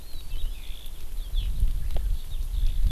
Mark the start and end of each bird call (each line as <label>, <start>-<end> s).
Eurasian Skylark (Alauda arvensis), 0.0-2.9 s
Hawaii Amakihi (Chlorodrepanis virens), 1.3-1.5 s